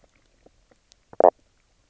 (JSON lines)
{"label": "biophony, knock croak", "recorder": "SoundTrap 300"}